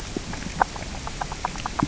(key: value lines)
label: biophony, grazing
recorder: SoundTrap 600 or HydroMoth